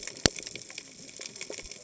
{"label": "biophony, cascading saw", "recorder": "HydroMoth"}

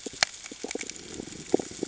{"label": "ambient", "recorder": "HydroMoth"}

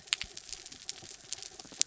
{"label": "anthrophony, mechanical", "recorder": "SoundTrap 300"}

